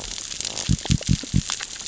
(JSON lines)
{"label": "biophony", "recorder": "SoundTrap 600 or HydroMoth"}